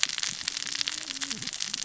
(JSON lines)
{"label": "biophony, cascading saw", "recorder": "SoundTrap 600 or HydroMoth"}